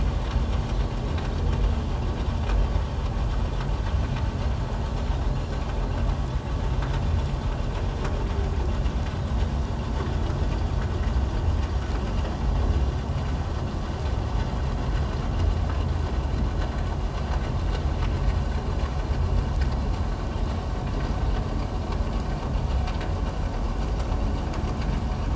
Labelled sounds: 5.3	5.7	Pacific white-sided dolphin, 6.8 to 7.0 kHz

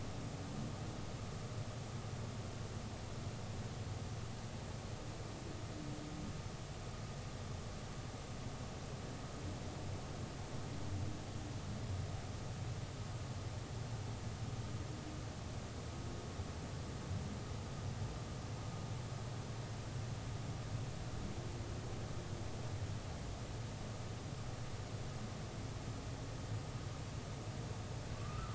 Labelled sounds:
28.2	28.5	humpback whale, 1.1 to 1.4 kHz

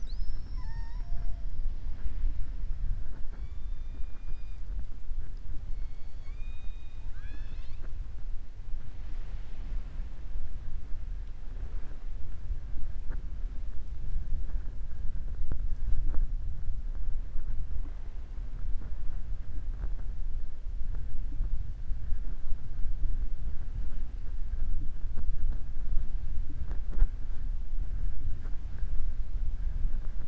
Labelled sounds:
5.7	8.0	killer whale, southern resident, 0.37 to 6.1 kHz

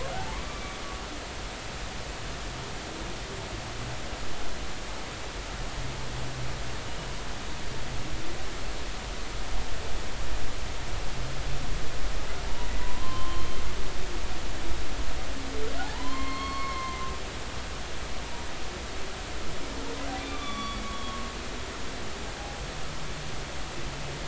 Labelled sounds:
0.1	0.4	humpback whale, 0.80 to 0.93 kHz
12.8	13.5	humpback whale, 0.93 to 3.2 kHz
15.8	17.0	humpback whale, 0.80 to 4.4 kHz
20.2	21.3	humpback whale, 0.99 to 3.6 kHz

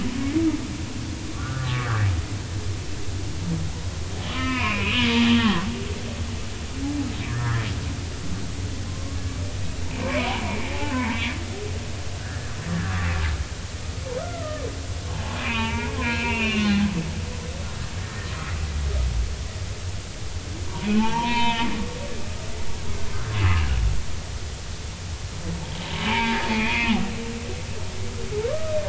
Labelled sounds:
1.3	1.9	humpback whale, 1.1 to 1.6 kHz
4.2	5.7	humpback whale, 0.93 to 3.2 kHz
7.3	7.6	humpback whale, 1.2 to 2.0 kHz
8.9	9.2	humpback whale, 0.99 to 1.1 kHz
9.9	11.2	humpback whale, 0.80 to 2.6 kHz
12.6	13.5	humpback whale, 1.2 to 1.9 kHz
14.2	16.9	humpback whale, 0.80 to 3.0 kHz
20.6	21.7	humpback whale, 0.80 to 3.9 kHz
26.1	26.9	humpback whale, 0.83 to 2.8 kHz
28.5	28.8	humpback whale, 1.1 to 1.3 kHz

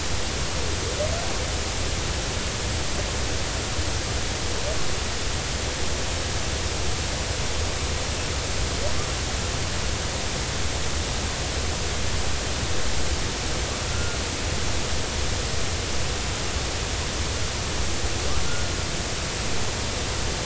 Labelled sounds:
13.8	14.2	humpback whale, 1.3 to 1.5 kHz

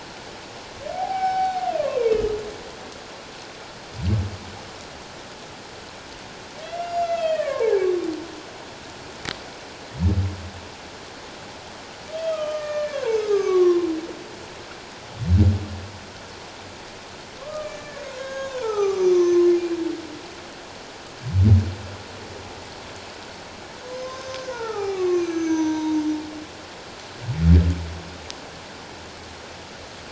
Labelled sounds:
0.9	2.2	humpback whale, 0.78 to 5.4 kHz
6.6	7.8	humpback whale, 0.78 to 5.6 kHz
12.1	13.9	humpback whale, 0.84 to 3.3 kHz
17.4	19.3	humpback whale, 0.78 to 6.5 kHz
23.9	26.0	humpback whale, 0.78 to 6.6 kHz

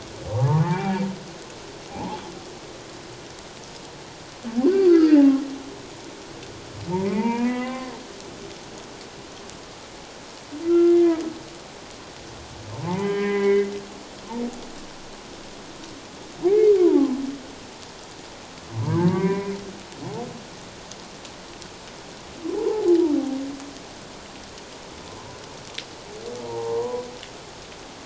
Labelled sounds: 1.9	2.2	humpback whale, 0.78 to 1.1 kHz
4.6	5.4	humpback whale, 0.78 to 4.8 kHz
6.9	7.9	humpback whale, 0.78 to 2.9 kHz
10.7	11.2	humpback whale, 1.3 to 2.1 kHz
12.8	13.7	humpback whale, 0.78 to 3.1 kHz
16.4	17.1	humpback whale, 0.78 to 2.4 kHz
18.7	19.5	humpback whale, 0.81 to 2.5 kHz
22.6	22.9	humpback whale, 0.78 to 1.1 kHz
26.4	27.1	humpback whale, 0.78 to 1.1 kHz

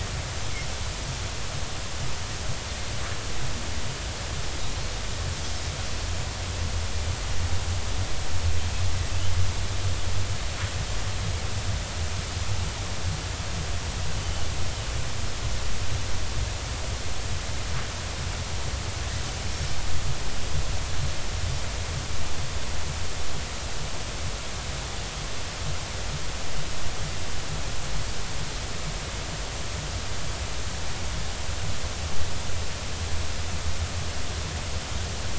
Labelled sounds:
14.1	14.5	Pacific white-sided dolphin, 2.8 to 3.1 kHz

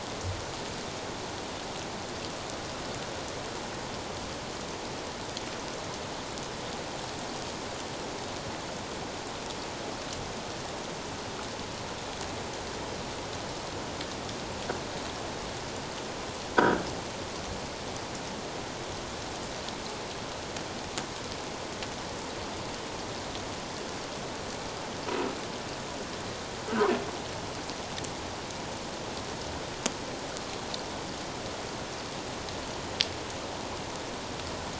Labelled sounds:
16.6	16.8	croaking sound likely from a nearby submerged object, 1.2 to 1.7 kHz

